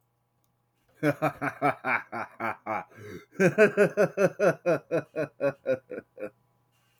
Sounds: Laughter